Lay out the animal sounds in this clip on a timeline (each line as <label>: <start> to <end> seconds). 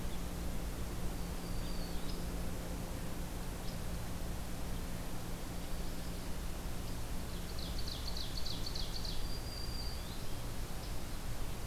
Black-throated Green Warbler (Setophaga virens): 1.2 to 2.2 seconds
Ovenbird (Seiurus aurocapilla): 7.2 to 9.2 seconds
Black-throated Green Warbler (Setophaga virens): 8.9 to 10.3 seconds